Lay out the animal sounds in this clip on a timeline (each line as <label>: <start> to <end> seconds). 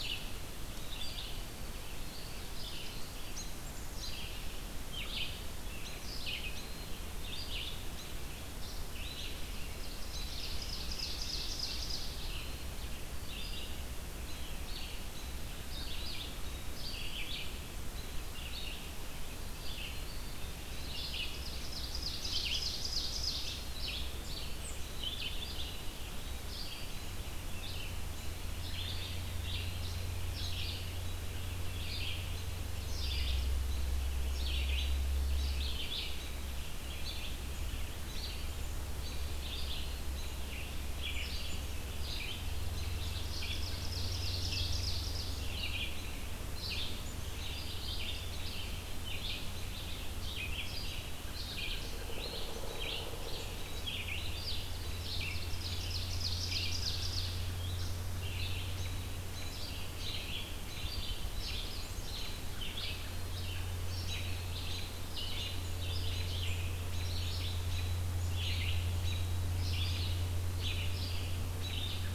Black-capped Chickadee (Poecile atricapillus): 0.0 to 4.2 seconds
Red-eyed Vireo (Vireo olivaceus): 0.0 to 72.1 seconds
Ovenbird (Seiurus aurocapilla): 9.9 to 12.4 seconds
Eastern Wood-Pewee (Contopus virens): 20.0 to 21.1 seconds
Ovenbird (Seiurus aurocapilla): 21.1 to 23.6 seconds
Ovenbird (Seiurus aurocapilla): 42.7 to 45.6 seconds
American Robin (Turdus migratorius): 51.3 to 52.2 seconds
Pileated Woodpecker (Dryocopus pileatus): 51.9 to 53.5 seconds
Ovenbird (Seiurus aurocapilla): 55.2 to 57.7 seconds
American Robin (Turdus migratorius): 57.7 to 72.1 seconds